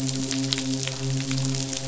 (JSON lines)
{"label": "biophony, midshipman", "recorder": "SoundTrap 500"}